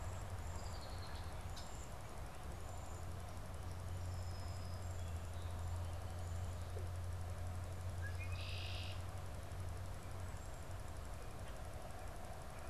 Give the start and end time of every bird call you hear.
[0.00, 1.83] Red-winged Blackbird (Agelaius phoeniceus)
[0.00, 3.13] Cedar Waxwing (Bombycilla cedrorum)
[3.53, 6.83] Song Sparrow (Melospiza melodia)
[7.83, 9.03] Red-winged Blackbird (Agelaius phoeniceus)

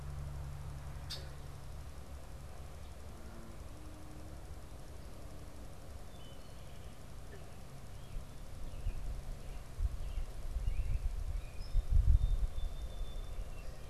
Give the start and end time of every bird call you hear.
[0.86, 1.46] Red-winged Blackbird (Agelaius phoeniceus)
[5.86, 6.66] Wood Thrush (Hylocichla mustelina)
[8.56, 11.66] unidentified bird
[11.56, 13.86] Song Sparrow (Melospiza melodia)

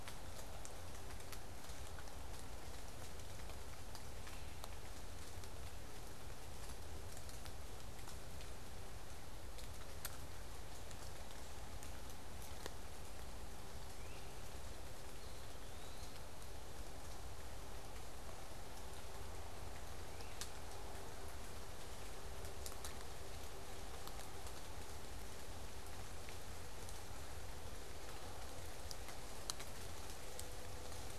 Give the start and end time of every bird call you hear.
[4.12, 4.72] Great Crested Flycatcher (Myiarchus crinitus)
[13.92, 14.42] Great Crested Flycatcher (Myiarchus crinitus)
[15.02, 16.22] Eastern Wood-Pewee (Contopus virens)
[19.92, 20.52] Great Crested Flycatcher (Myiarchus crinitus)

